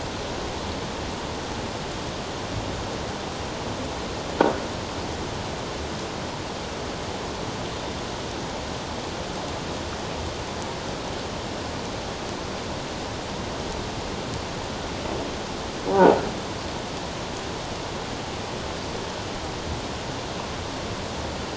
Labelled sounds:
15.9	16.2	croaking sound likely from a nearby submerged object, 0.78 to 1.0 kHz

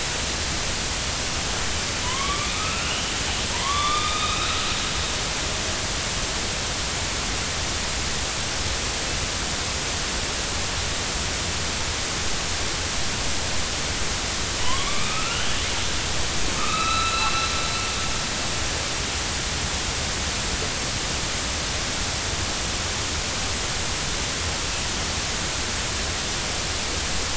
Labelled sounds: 2.0	3.1	killer whale, northern resident, A clan, AB subclan, 0.93 to 3.2 kHz
3.5	4.7	killer whale, northern resident, A clan, AB subclan, 0.90 to 3.9 kHz
14.6	15.5	killer whale, northern resident, A clan, AB subclan, 0.93 to 3.2 kHz
16.6	17.5	killer whale, northern resident, A clan, AB subclan, 1.1 to 4.1 kHz

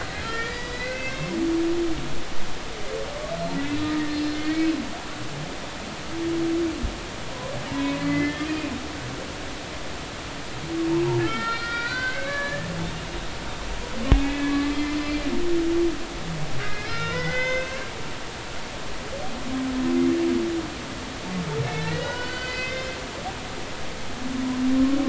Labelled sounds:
0.1	1.4	humpback whale, 1.3 to 5.0 kHz
3.8	4.4	humpback whale, 1.8 to 5.2 kHz
7.8	8.7	humpback whale, 1.7 to 3.4 kHz
11.2	12.7	humpback whale, 0.99 to 4.6 kHz
14.1	15.3	humpback whale, 1.1 to 4.2 kHz
16.6	17.8	humpback whale, 1.3 to 6.3 kHz
21.7	23.0	humpback whale, 0.93 to 5.2 kHz

